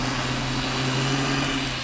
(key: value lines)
label: anthrophony, boat engine
recorder: SoundTrap 500